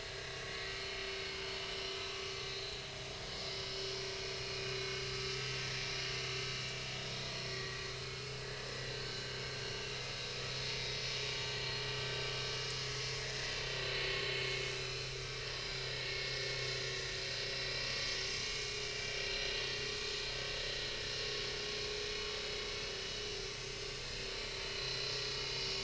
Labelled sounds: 1.6	2.8	vessel noise, 3.6 to 5.5 kHz
4.4	5.1	vessel noise, 2.4 to 6.0 kHz
5.4	5.6	vessel noise, 2.7 to 2.8 kHz
7.5	7.8	vessel noise, 1.1 to 2.0 kHz
8.9	9.3	vessel noise, 1.5 to 4.5 kHz
11.9	12.2	vessel noise, 5.4 to 5.6 kHz
12.8	14.2	vessel noise, 2.0 to 6.5 kHz
14.8	16.3	vessel noise, 1.7 to 4.4 kHz
19.3	19.7	vessel noise, 6.0 to 6.2 kHz
23.6	24.0	vessel noise, 3.5 to 6.5 kHz
24.8	25.1	vessel noise, 4.0 to 4.2 kHz

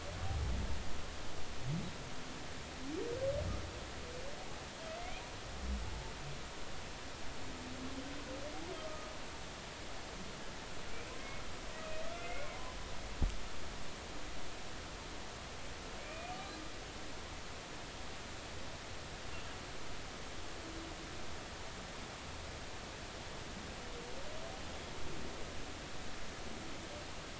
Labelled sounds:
5.0	5.2	humpback whale, 2.0 to 2.5 kHz
12.0	12.6	humpback whale, 1.2 to 2.4 kHz
16.0	16.3	humpback whale, 2.3 to 2.5 kHz

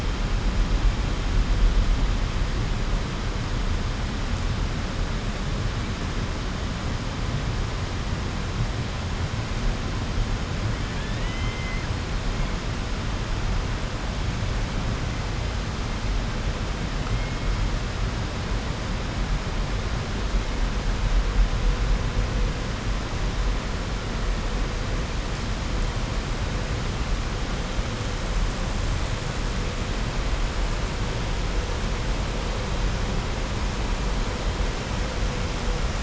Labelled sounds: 10.8	11.9	killer whale, southern resident, 1.6 to 3.7 kHz

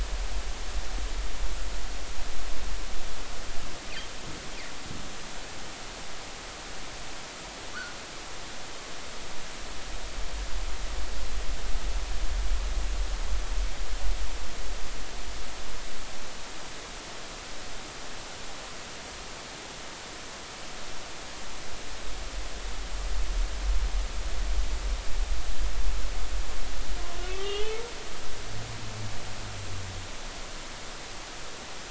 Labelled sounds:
27.3	27.8	humpback whale, 1.1 to 3.4 kHz

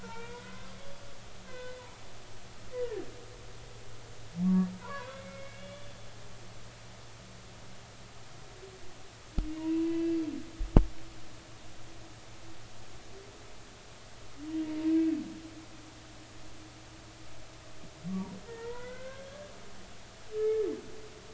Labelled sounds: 0.0	1.8	humpback whale, 0.83 to 2.8 kHz
2.7	3.1	humpback whale, 1.6 to 2.0 kHz
4.4	6.0	humpback whale, 0.83 to 3.5 kHz
9.6	10.0	humpback whale, 0.90 to 1.1 kHz
18.5	19.5	humpback whale, 0.86 to 2.1 kHz

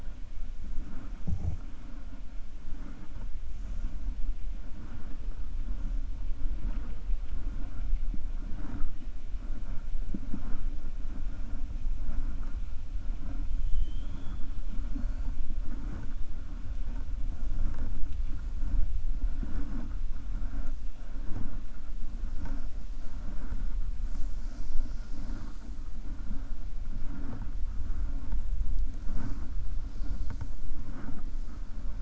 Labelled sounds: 13.6	14.4	killer whale, 3.0 to 4.1 kHz

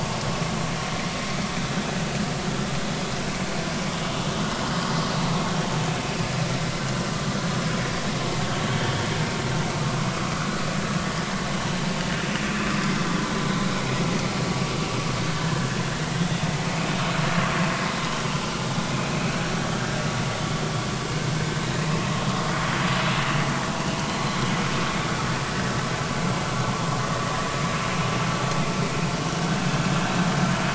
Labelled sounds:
8.7	9.0	vessel noise, 3.1 to 3.2 kHz
10.1	11.3	vessel noise, 1.0 to 1.9 kHz
17.2	17.5	vessel noise, 3.2 to 3.6 kHz
24.1	24.4	vessel noise, 4.0 to 4.3 kHz

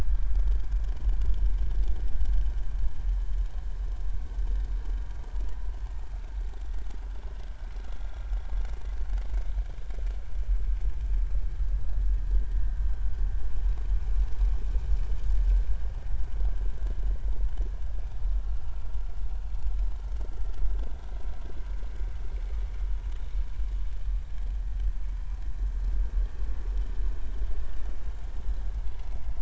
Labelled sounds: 0.0	0.4	vessel noise, 1.2 to 1.4 kHz
27.7	28.0	vessel noise, 2.8 to 3.0 kHz

